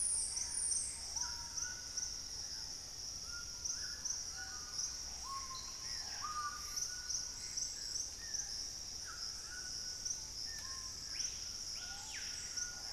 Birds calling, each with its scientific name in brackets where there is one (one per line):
Dusky-throated Antshrike (Thamnomanes ardesiacus)
Screaming Piha (Lipaugus vociferans)
White-throated Toucan (Ramphastos tucanus)
Gray Antbird (Cercomacra cinerascens)
Plain-throated Antwren (Isleria hauxwelli)